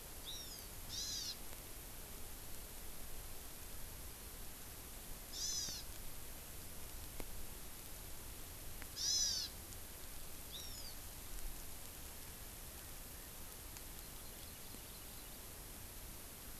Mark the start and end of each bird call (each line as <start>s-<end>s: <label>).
0.3s-1.4s: Hawaii Amakihi (Chlorodrepanis virens)
5.4s-5.9s: Hawaii Amakihi (Chlorodrepanis virens)
9.0s-9.5s: Hawaii Amakihi (Chlorodrepanis virens)
10.5s-11.0s: Hawaii Amakihi (Chlorodrepanis virens)
14.0s-15.5s: Hawaii Amakihi (Chlorodrepanis virens)